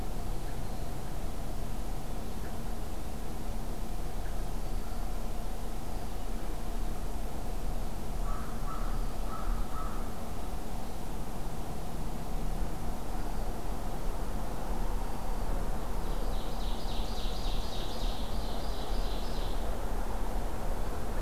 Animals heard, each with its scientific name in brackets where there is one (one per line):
Black-throated Green Warbler (Setophaga virens)
American Crow (Corvus brachyrhynchos)
Ovenbird (Seiurus aurocapilla)